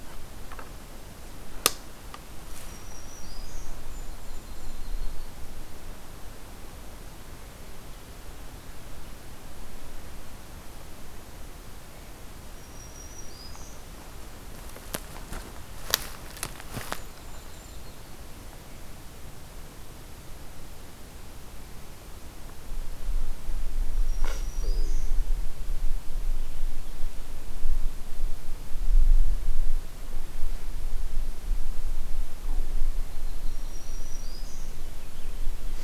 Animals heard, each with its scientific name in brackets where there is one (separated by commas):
Black-throated Green Warbler (Setophaga virens), Yellow-rumped Warbler (Setophaga coronata), Golden-crowned Kinglet (Regulus satrapa)